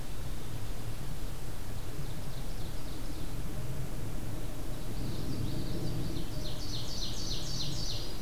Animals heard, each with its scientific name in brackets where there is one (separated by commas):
Common Yellowthroat (Geothlypis trichas), Ovenbird (Seiurus aurocapilla)